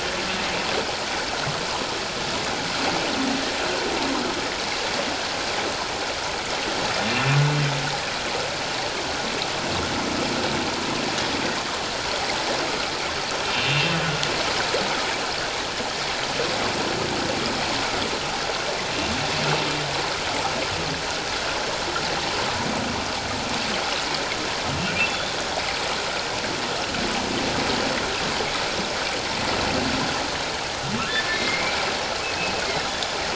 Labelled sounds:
7.1	7.4	humpback whale, 2.3 to 2.8 kHz
13.5	13.9	humpback whale, 2.5 to 2.9 kHz
25.1	25.3	humpback whale, 3.3 to 3.8 kHz
31.3	32.6	humpback whale, 2.0 to 2.7 kHz

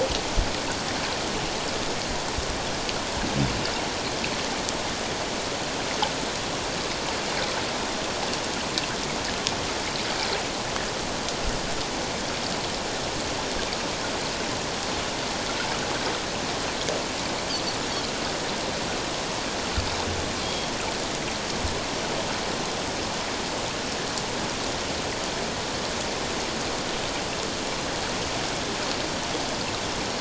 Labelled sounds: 20.4	20.7	Pacific white-sided dolphin, 3.2 to 3.3 kHz

